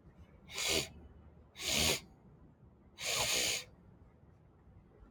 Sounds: Sniff